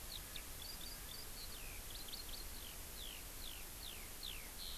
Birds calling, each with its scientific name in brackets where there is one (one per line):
Eurasian Skylark (Alauda arvensis)